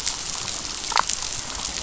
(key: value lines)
label: biophony, damselfish
recorder: SoundTrap 500